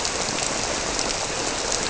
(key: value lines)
label: biophony
recorder: SoundTrap 300